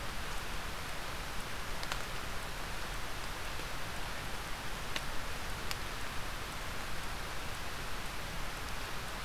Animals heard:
forest ambience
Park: Marsh-Billings-Rockefeller National Historical Park